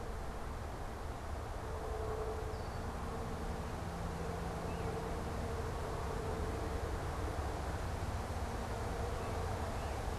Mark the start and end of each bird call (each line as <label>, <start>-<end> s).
Red-winged Blackbird (Agelaius phoeniceus), 0.0-3.0 s
unidentified bird, 0.0-10.1 s